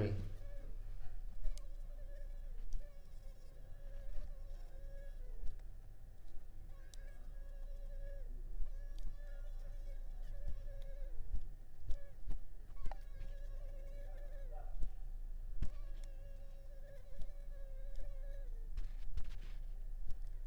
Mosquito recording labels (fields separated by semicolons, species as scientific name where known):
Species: Culex pipiens complex; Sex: female; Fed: unfed; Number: one; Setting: cup